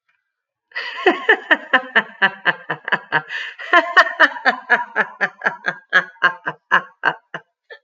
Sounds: Laughter